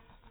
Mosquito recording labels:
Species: mosquito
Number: one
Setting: cup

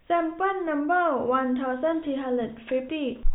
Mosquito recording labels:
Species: no mosquito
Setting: cup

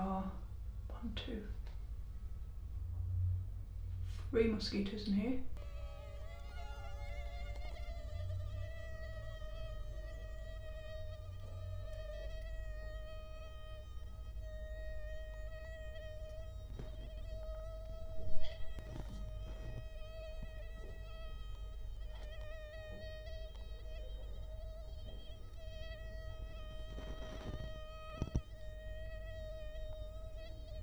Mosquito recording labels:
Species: Culex quinquefasciatus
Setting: cup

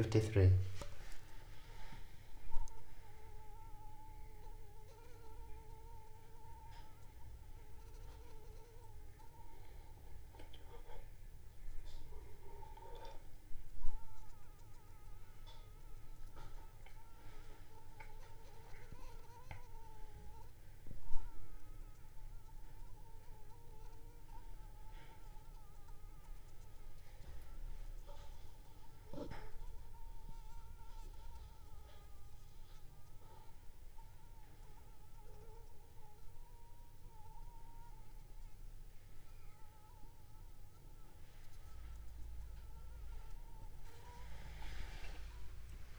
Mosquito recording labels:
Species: Anopheles funestus s.l.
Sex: female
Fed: unfed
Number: one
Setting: cup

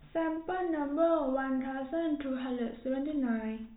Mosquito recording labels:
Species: no mosquito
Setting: cup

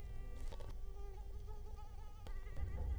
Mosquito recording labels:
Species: Culex quinquefasciatus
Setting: cup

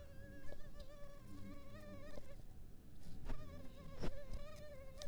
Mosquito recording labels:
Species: mosquito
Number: one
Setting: cup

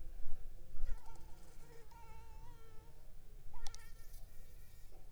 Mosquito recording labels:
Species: Anopheles arabiensis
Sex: female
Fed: unfed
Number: one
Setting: cup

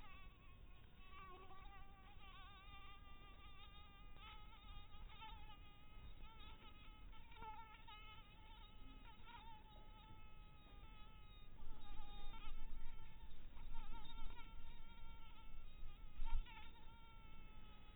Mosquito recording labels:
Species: mosquito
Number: one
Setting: cup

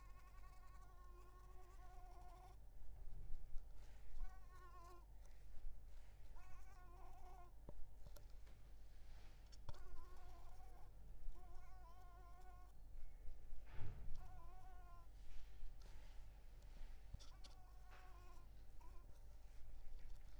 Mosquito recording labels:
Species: Mansonia africanus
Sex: female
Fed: unfed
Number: one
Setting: cup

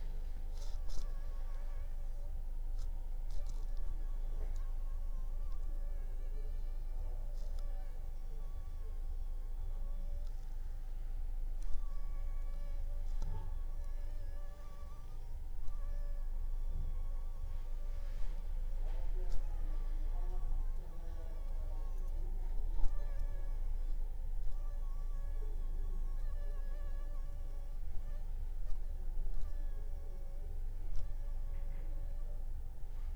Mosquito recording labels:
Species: Anopheles funestus s.l.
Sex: female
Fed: unfed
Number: one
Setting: cup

